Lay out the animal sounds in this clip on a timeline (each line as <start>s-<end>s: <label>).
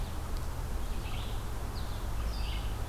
0.0s-2.9s: Red-eyed Vireo (Vireo olivaceus)